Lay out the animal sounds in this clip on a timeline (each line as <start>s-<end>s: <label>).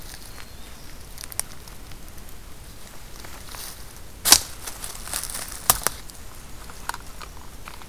0.0s-1.1s: Black-throated Green Warbler (Setophaga virens)
6.1s-7.9s: Black-and-white Warbler (Mniotilta varia)